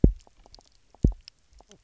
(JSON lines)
{"label": "biophony, double pulse", "recorder": "SoundTrap 300"}
{"label": "biophony", "recorder": "SoundTrap 300"}
{"label": "biophony, knock croak", "recorder": "SoundTrap 300"}